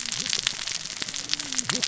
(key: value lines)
label: biophony, cascading saw
recorder: SoundTrap 600 or HydroMoth